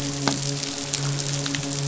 {"label": "biophony, midshipman", "recorder": "SoundTrap 500"}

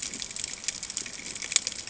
{"label": "ambient", "recorder": "HydroMoth"}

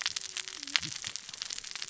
{"label": "biophony, cascading saw", "recorder": "SoundTrap 600 or HydroMoth"}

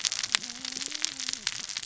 {"label": "biophony, cascading saw", "recorder": "SoundTrap 600 or HydroMoth"}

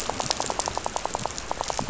{"label": "biophony, rattle", "recorder": "SoundTrap 500"}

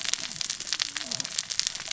{"label": "biophony, cascading saw", "recorder": "SoundTrap 600 or HydroMoth"}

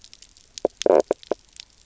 {"label": "biophony, knock croak", "recorder": "SoundTrap 300"}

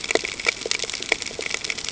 {"label": "ambient", "recorder": "HydroMoth"}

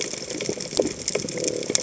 {"label": "biophony", "recorder": "HydroMoth"}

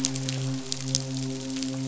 {"label": "biophony, midshipman", "recorder": "SoundTrap 500"}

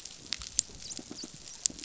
{"label": "biophony, pulse", "recorder": "SoundTrap 500"}
{"label": "biophony, dolphin", "recorder": "SoundTrap 500"}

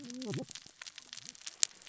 {"label": "biophony, cascading saw", "recorder": "SoundTrap 600 or HydroMoth"}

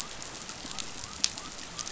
{"label": "biophony", "recorder": "SoundTrap 500"}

